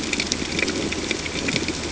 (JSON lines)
{"label": "ambient", "recorder": "HydroMoth"}